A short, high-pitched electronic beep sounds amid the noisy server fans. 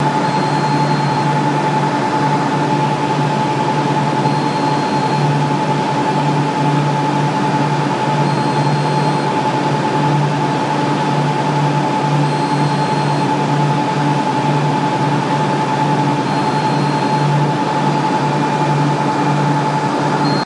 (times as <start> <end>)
0.0 1.4, 4.1 5.6, 8.1 9.5, 12.1 13.6, 16.3 17.7, 20.1 20.5